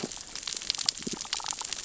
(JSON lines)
{"label": "biophony, damselfish", "recorder": "SoundTrap 600 or HydroMoth"}